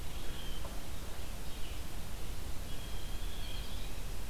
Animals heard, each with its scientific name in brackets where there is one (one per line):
Red-eyed Vireo (Vireo olivaceus)
Blue Jay (Cyanocitta cristata)